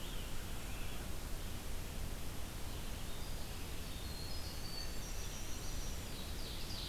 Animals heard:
Ovenbird (Seiurus aurocapilla), Red-eyed Vireo (Vireo olivaceus), Winter Wren (Troglodytes hiemalis)

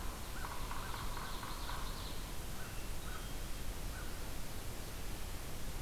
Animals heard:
American Crow (Corvus brachyrhynchos), Yellow-bellied Sapsucker (Sphyrapicus varius), Ovenbird (Seiurus aurocapilla)

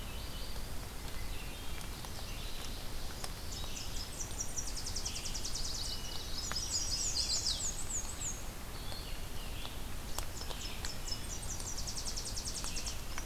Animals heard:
Chestnut-sided Warbler (Setophaga pensylvanica), Tennessee Warbler (Leiothlypis peregrina), Red-eyed Vireo (Vireo olivaceus), Black-and-white Warbler (Mniotilta varia)

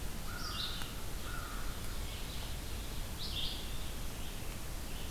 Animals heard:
American Crow (Corvus brachyrhynchos), Red-eyed Vireo (Vireo olivaceus), Ovenbird (Seiurus aurocapilla)

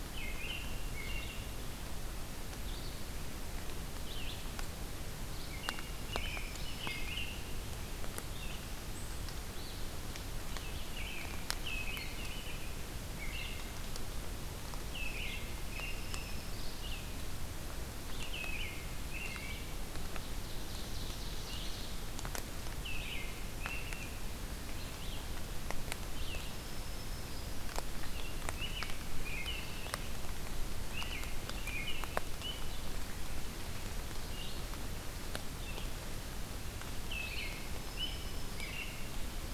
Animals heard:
Ovenbird (Seiurus aurocapilla), Red-eyed Vireo (Vireo olivaceus), Black-throated Green Warbler (Setophaga virens), American Robin (Turdus migratorius)

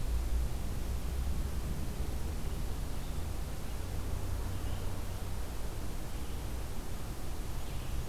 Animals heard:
Red-eyed Vireo (Vireo olivaceus)

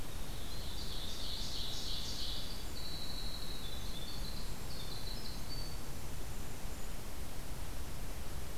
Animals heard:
Winter Wren (Troglodytes hiemalis), Ovenbird (Seiurus aurocapilla)

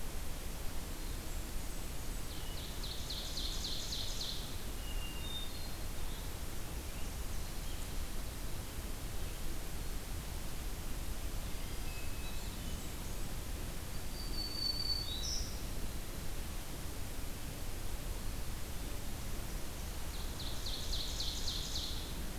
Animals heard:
Hermit Thrush (Catharus guttatus), Ovenbird (Seiurus aurocapilla), Blackburnian Warbler (Setophaga fusca), Black-throated Green Warbler (Setophaga virens)

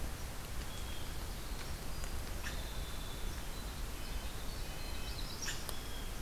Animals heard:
Red-breasted Nuthatch (Sitta canadensis), Winter Wren (Troglodytes hiemalis), Blue Jay (Cyanocitta cristata)

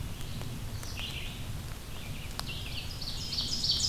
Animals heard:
Ovenbird (Seiurus aurocapilla), Red-eyed Vireo (Vireo olivaceus)

